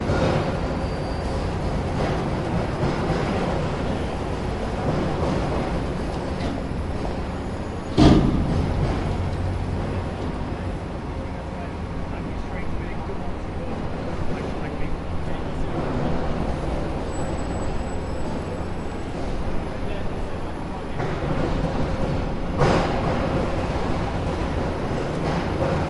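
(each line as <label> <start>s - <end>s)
Construction sounds. 0.0s - 25.9s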